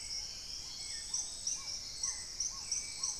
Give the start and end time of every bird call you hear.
[0.00, 2.30] Dusky-throated Antshrike (Thamnomanes ardesiacus)
[0.00, 3.19] Black-tailed Trogon (Trogon melanurus)
[0.00, 3.19] Hauxwell's Thrush (Turdus hauxwelli)
[0.00, 3.19] Spot-winged Antshrike (Pygiptila stellaris)
[0.60, 2.10] Plumbeous Pigeon (Patagioenas plumbea)
[2.50, 3.19] Paradise Tanager (Tangara chilensis)

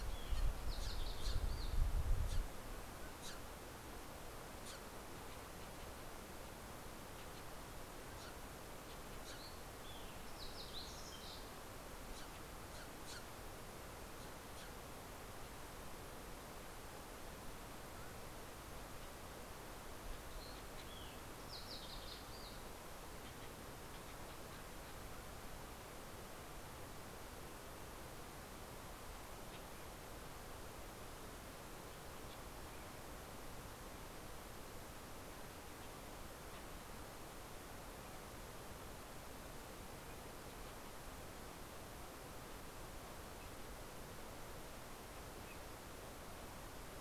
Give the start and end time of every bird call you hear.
[0.00, 2.36] Fox Sparrow (Passerella iliaca)
[0.00, 5.36] Steller's Jay (Cyanocitta stelleri)
[7.26, 15.06] Steller's Jay (Cyanocitta stelleri)
[8.36, 12.36] Fox Sparrow (Passerella iliaca)
[19.76, 23.36] Fox Sparrow (Passerella iliaca)

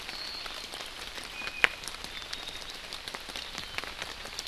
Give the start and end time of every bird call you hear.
[1.30, 1.91] Iiwi (Drepanis coccinea)

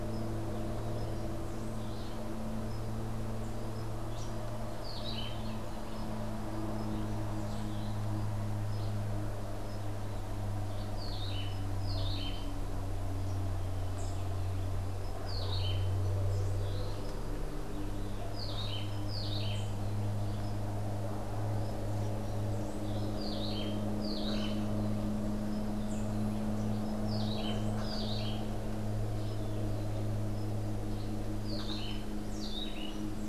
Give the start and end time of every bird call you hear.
[4.58, 5.58] Cabanis's Wren (Cantorchilus modestus)
[10.78, 12.58] Cabanis's Wren (Cantorchilus modestus)
[15.28, 33.28] Cabanis's Wren (Cantorchilus modestus)

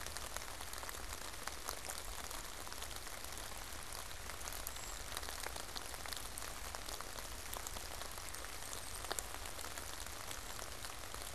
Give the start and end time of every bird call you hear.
[4.38, 9.48] Brown Creeper (Certhia americana)

